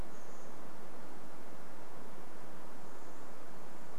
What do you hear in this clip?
Chestnut-backed Chickadee call